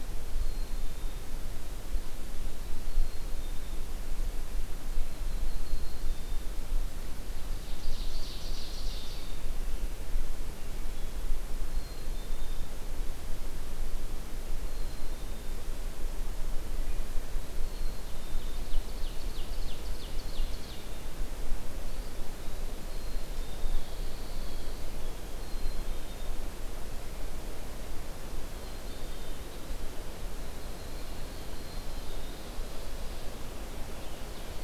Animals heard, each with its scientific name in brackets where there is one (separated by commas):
Eastern Wood-Pewee (Contopus virens), Yellow-rumped Warbler (Setophaga coronata), Black-capped Chickadee (Poecile atricapillus), Pine Warbler (Setophaga pinus), Ovenbird (Seiurus aurocapilla)